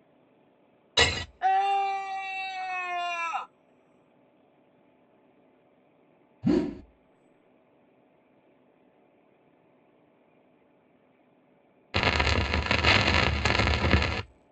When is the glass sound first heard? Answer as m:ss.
0:01